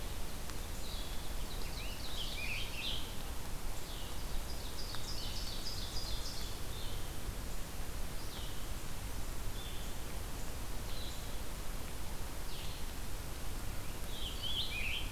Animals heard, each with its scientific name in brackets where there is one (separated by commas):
Blue-headed Vireo (Vireo solitarius), Ovenbird (Seiurus aurocapilla), Scarlet Tanager (Piranga olivacea)